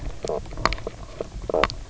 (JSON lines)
{"label": "biophony, knock croak", "recorder": "SoundTrap 300"}